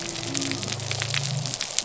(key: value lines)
label: biophony
recorder: SoundTrap 300